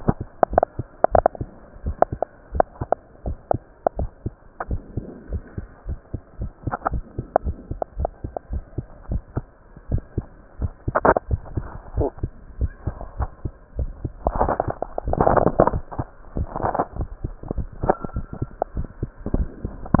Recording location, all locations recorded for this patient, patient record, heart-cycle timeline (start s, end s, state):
mitral valve (MV)
aortic valve (AV)+pulmonary valve (PV)+tricuspid valve (TV)+mitral valve (MV)
#Age: Child
#Sex: Male
#Height: 127.0 cm
#Weight: 26.1 kg
#Pregnancy status: False
#Murmur: Absent
#Murmur locations: nan
#Most audible location: nan
#Systolic murmur timing: nan
#Systolic murmur shape: nan
#Systolic murmur grading: nan
#Systolic murmur pitch: nan
#Systolic murmur quality: nan
#Diastolic murmur timing: nan
#Diastolic murmur shape: nan
#Diastolic murmur grading: nan
#Diastolic murmur pitch: nan
#Diastolic murmur quality: nan
#Outcome: Normal
#Campaign: 2015 screening campaign
0.00	1.82	unannotated
1.82	1.96	S1
1.96	2.10	systole
2.10	2.22	S2
2.22	2.54	diastole
2.54	2.66	S1
2.66	2.80	systole
2.80	2.92	S2
2.92	3.24	diastole
3.24	3.38	S1
3.38	3.50	systole
3.50	3.64	S2
3.64	3.96	diastole
3.96	4.10	S1
4.10	4.22	systole
4.22	4.36	S2
4.36	4.66	diastole
4.66	4.82	S1
4.82	4.94	systole
4.94	5.04	S2
5.04	5.30	diastole
5.30	5.42	S1
5.42	5.54	systole
5.54	5.64	S2
5.64	5.88	diastole
5.88	6.00	S1
6.00	6.10	systole
6.10	6.20	S2
6.20	6.40	diastole
6.40	6.52	S1
6.52	6.64	systole
6.64	6.72	S2
6.72	6.92	diastole
6.92	7.04	S1
7.04	7.14	systole
7.14	7.24	S2
7.24	7.44	diastole
7.44	7.58	S1
7.58	7.68	systole
7.68	7.78	S2
7.78	7.98	diastole
7.98	8.10	S1
8.10	8.22	systole
8.22	8.32	S2
8.32	8.52	diastole
8.52	8.64	S1
8.64	8.74	systole
8.74	8.86	S2
8.86	9.10	diastole
9.10	9.22	S1
9.22	9.34	systole
9.34	9.45	S2
9.45	9.88	diastole
9.88	10.02	S1
10.02	10.14	systole
10.14	10.28	S2
10.28	10.58	diastole
10.58	10.72	S1
10.72	10.84	systole
10.84	10.96	S2
10.96	11.26	diastole
11.26	11.44	S1
11.44	11.54	systole
11.54	11.68	S2
11.68	11.96	diastole
11.96	12.12	S1
12.12	12.20	systole
12.20	12.34	S2
12.34	12.58	diastole
12.58	12.72	S1
12.72	12.84	systole
12.84	12.98	S2
12.98	13.18	diastole
13.18	13.30	S1
13.30	13.42	systole
13.42	13.52	S2
13.52	13.76	diastole
13.76	13.92	S1
13.92	14.02	systole
14.02	14.12	S2
14.12	20.00	unannotated